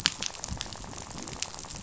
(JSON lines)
{"label": "biophony, rattle", "recorder": "SoundTrap 500"}